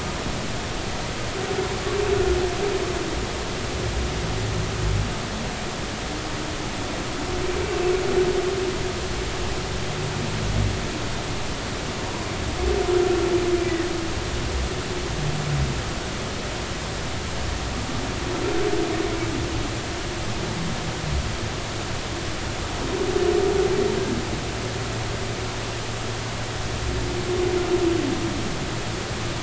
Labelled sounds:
13.6	13.9	humpback whale, 1.7 to 2.0 kHz

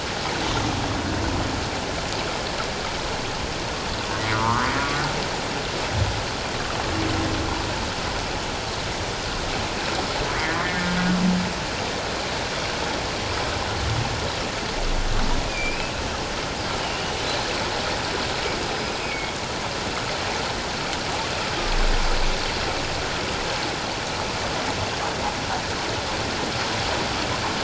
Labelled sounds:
4.3	4.7	humpback whale, 0.84 to 1.5 kHz
10.6	10.9	humpback whale, 1.8 to 2.2 kHz
15.5	15.9	humpback whale, 2.3 to 5.0 kHz
16.8	17.2	humpback whale, 2.7 to 3.0 kHz
18.7	19.3	humpback whale, 2.1 to 5.1 kHz

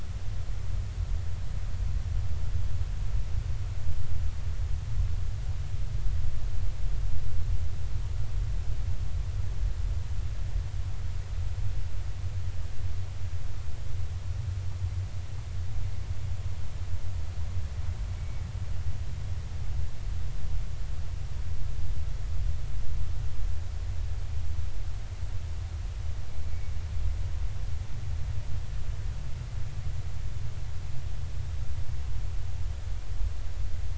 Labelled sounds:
18.2	18.4	humpback whale, 2.2 to 2.3 kHz

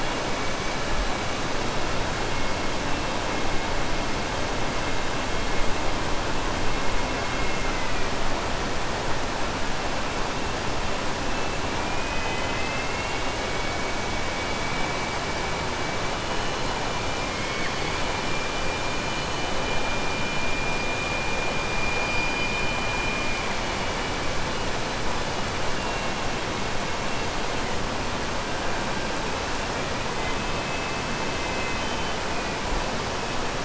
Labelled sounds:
17.3	18.0	killer whale, southern resident, 1.7 to 3.6 kHz
22.2	22.7	killer whale, southern resident, 2.1 to 4.2 kHz

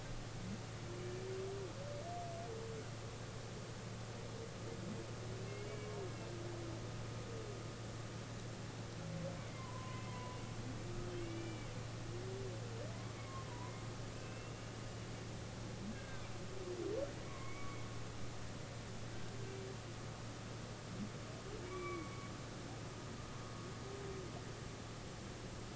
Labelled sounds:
5.4	5.9	humpback whale, 2.1 to 2.8 kHz
9.4	10.4	humpback whale, 0.93 to 2.3 kHz
11.2	11.7	humpback whale, 2.1 to 3.0 kHz
13.2	13.7	humpback whale, 0.93 to 1.2 kHz
14.1	14.7	humpback whale, 2.5 to 2.9 kHz
15.9	16.2	humpback whale, 1.5 to 1.7 kHz
17.2	17.8	humpback whale, 1.0 to 2.3 kHz
21.7	22.1	humpback whale, 1.1 to 2.4 kHz

